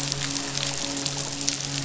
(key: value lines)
label: biophony, midshipman
recorder: SoundTrap 500